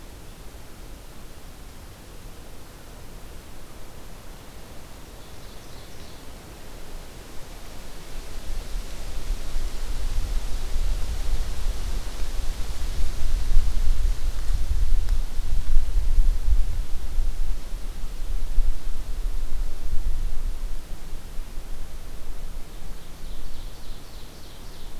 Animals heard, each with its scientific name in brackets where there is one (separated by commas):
Ovenbird (Seiurus aurocapilla)